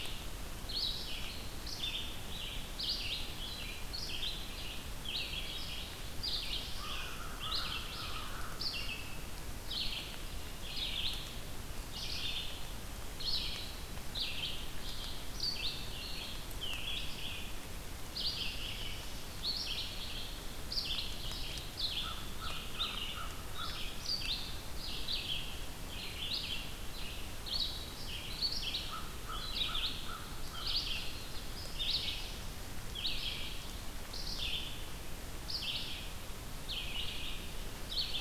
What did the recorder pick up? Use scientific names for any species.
Vireo olivaceus, Setophaga caerulescens, Corvus brachyrhynchos